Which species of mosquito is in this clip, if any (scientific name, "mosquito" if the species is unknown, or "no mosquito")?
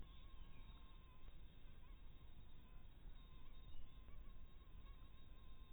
mosquito